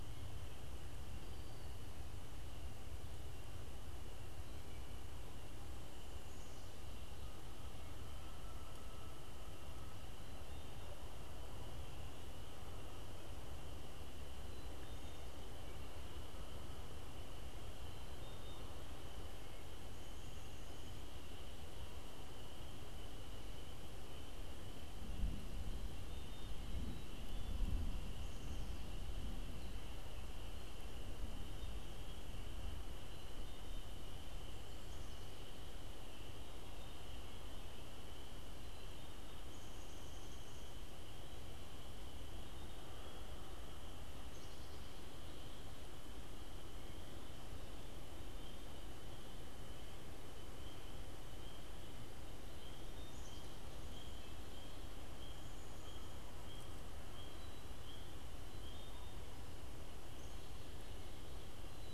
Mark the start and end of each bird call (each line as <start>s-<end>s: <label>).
6.9s-10.7s: Canada Goose (Branta canadensis)
17.7s-18.8s: Black-capped Chickadee (Poecile atricapillus)
25.7s-27.7s: Black-capped Chickadee (Poecile atricapillus)
33.0s-34.0s: Black-capped Chickadee (Poecile atricapillus)
44.1s-46.1s: Black-capped Chickadee (Poecile atricapillus)
52.5s-54.1s: Black-capped Chickadee (Poecile atricapillus)